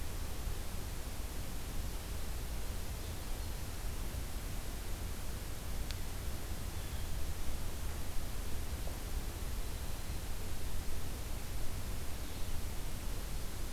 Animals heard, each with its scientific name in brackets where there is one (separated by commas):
Blue Jay (Cyanocitta cristata), unidentified call